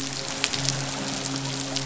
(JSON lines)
{"label": "biophony, midshipman", "recorder": "SoundTrap 500"}